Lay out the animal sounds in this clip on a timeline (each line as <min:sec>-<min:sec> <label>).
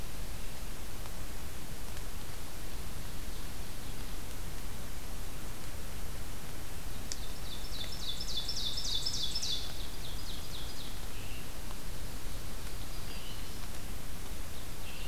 0:06.8-0:11.1 Ovenbird (Seiurus aurocapilla)
0:11.0-0:15.1 Scarlet Tanager (Piranga olivacea)
0:12.2-0:13.8 Black-throated Green Warbler (Setophaga virens)